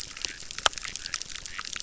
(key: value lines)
label: biophony, chorus
recorder: SoundTrap 600